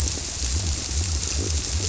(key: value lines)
label: biophony
recorder: SoundTrap 300